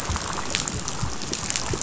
{"label": "biophony, chatter", "recorder": "SoundTrap 500"}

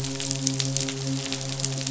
{"label": "biophony, midshipman", "recorder": "SoundTrap 500"}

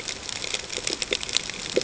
{"label": "ambient", "recorder": "HydroMoth"}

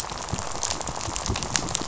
{"label": "biophony, rattle", "recorder": "SoundTrap 500"}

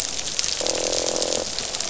{"label": "biophony, croak", "recorder": "SoundTrap 500"}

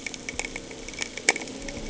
{"label": "anthrophony, boat engine", "recorder": "HydroMoth"}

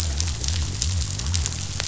{"label": "biophony", "recorder": "SoundTrap 500"}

